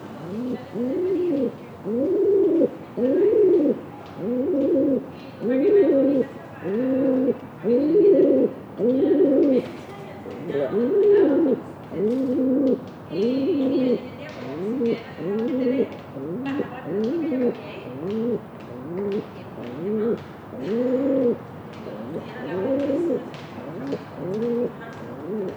Are people talking in the background?
yes